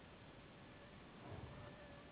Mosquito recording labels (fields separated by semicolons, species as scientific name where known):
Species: Anopheles gambiae s.s.; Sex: female; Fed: unfed; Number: one; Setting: insect culture